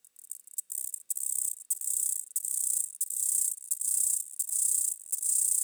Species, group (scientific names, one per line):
Chorthippus mollis
Orthoptera